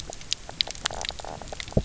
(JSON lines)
{"label": "biophony, knock croak", "recorder": "SoundTrap 300"}